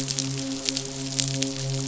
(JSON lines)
{"label": "biophony, midshipman", "recorder": "SoundTrap 500"}